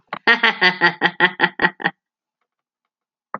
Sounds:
Laughter